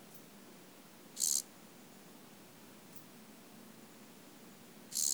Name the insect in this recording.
Chorthippus brunneus, an orthopteran